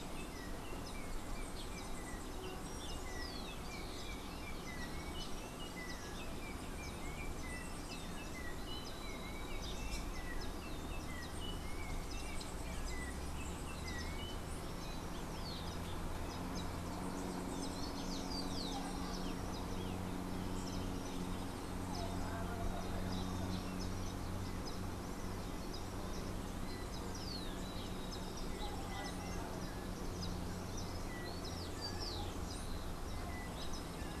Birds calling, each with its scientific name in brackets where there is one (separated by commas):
Rufous-collared Sparrow (Zonotrichia capensis), unidentified bird, Yellow-backed Oriole (Icterus chrysater)